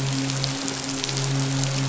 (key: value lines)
label: biophony, midshipman
recorder: SoundTrap 500